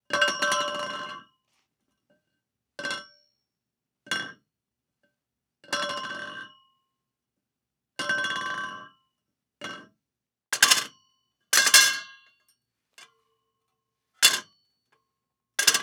is the phone ringing?
no